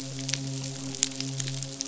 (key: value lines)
label: biophony, midshipman
recorder: SoundTrap 500